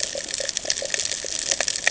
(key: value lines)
label: ambient
recorder: HydroMoth